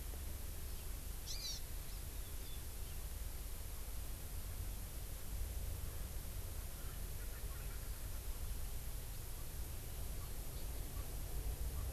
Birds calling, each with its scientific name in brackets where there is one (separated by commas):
Erckel's Francolin (Pternistis erckelii), Hawaii Amakihi (Chlorodrepanis virens)